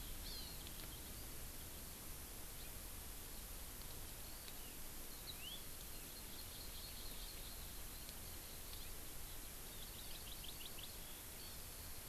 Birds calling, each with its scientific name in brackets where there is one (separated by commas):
Hawaii Amakihi (Chlorodrepanis virens), Eurasian Skylark (Alauda arvensis), House Finch (Haemorhous mexicanus)